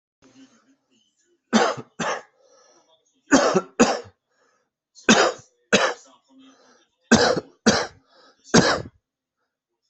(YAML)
expert_labels:
- quality: good
  cough_type: dry
  dyspnea: false
  wheezing: false
  stridor: false
  choking: false
  congestion: false
  nothing: true
  diagnosis: upper respiratory tract infection
  severity: mild
age: 39
gender: male
respiratory_condition: false
fever_muscle_pain: false
status: COVID-19